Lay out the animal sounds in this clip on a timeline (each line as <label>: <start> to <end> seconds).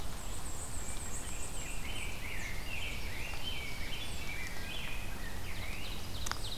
Black-and-white Warbler (Mniotilta varia): 0.0 to 1.8 seconds
Rose-breasted Grosbeak (Pheucticus ludovicianus): 1.1 to 5.9 seconds
Ovenbird (Seiurus aurocapilla): 2.5 to 4.7 seconds
Ovenbird (Seiurus aurocapilla): 5.4 to 6.6 seconds